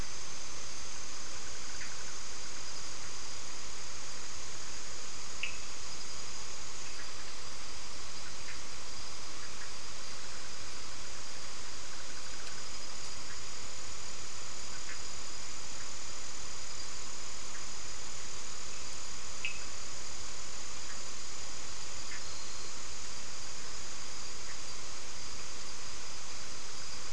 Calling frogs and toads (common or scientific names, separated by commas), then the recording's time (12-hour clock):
Cochran's lime tree frog
9:15pm